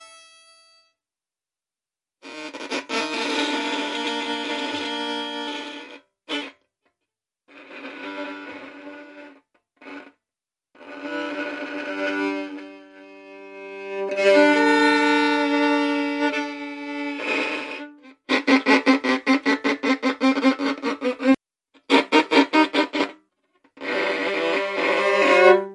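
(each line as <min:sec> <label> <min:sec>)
0:00.1 A bowed string instrument produces a smooth, continuous tone with light squeaky overtones in a quiet indoor setting. 0:02.3
0:02.3 Harsh, high-pitched squeaking sounds resembling a violin played with excessive pressure, creating a rough, screechy texture. 0:06.2
0:07.1 Harsh, high-pitched squeaking sounds resembling a violin played with excessive pressure, creating a rough, screechy texture. 0:12.9
0:18.2 Sharp, metallic screeches occur in short bursts. 0:25.4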